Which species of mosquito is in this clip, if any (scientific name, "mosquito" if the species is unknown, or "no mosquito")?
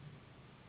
Anopheles gambiae s.s.